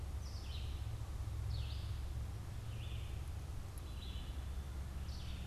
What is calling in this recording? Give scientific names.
Poecile atricapillus, Vireo olivaceus